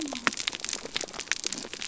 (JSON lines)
{"label": "biophony", "recorder": "SoundTrap 300"}